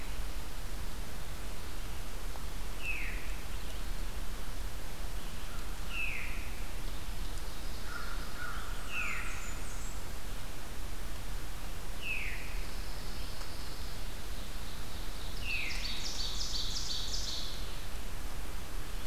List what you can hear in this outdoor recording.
Veery, Ovenbird, American Crow, Blackburnian Warbler, Pine Warbler